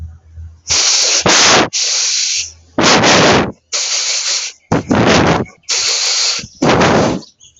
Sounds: Sigh